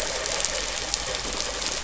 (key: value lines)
label: anthrophony, boat engine
recorder: SoundTrap 500